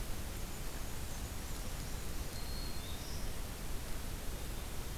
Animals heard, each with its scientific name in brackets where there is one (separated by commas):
Black-throated Green Warbler (Setophaga virens), Black-and-white Warbler (Mniotilta varia)